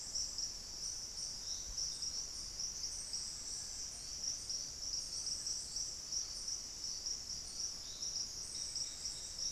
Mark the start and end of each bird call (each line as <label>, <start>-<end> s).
Long-billed Woodcreeper (Nasica longirostris), 3.2-4.1 s